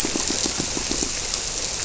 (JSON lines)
{"label": "biophony, squirrelfish (Holocentrus)", "recorder": "SoundTrap 300"}